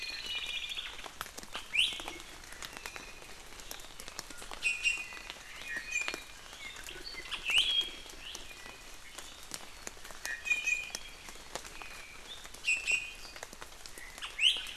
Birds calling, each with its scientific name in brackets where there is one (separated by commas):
Hawaii Creeper (Loxops mana), Iiwi (Drepanis coccinea)